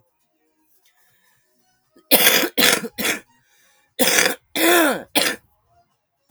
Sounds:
Cough